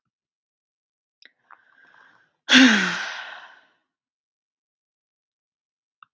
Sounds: Sigh